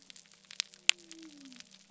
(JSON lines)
{"label": "biophony", "recorder": "SoundTrap 300"}